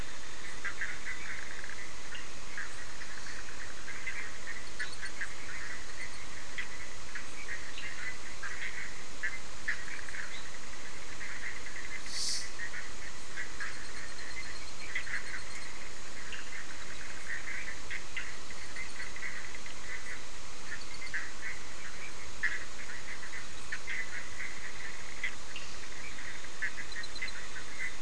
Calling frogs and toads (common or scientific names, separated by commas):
Bischoff's tree frog, Cochran's lime tree frog, fine-lined tree frog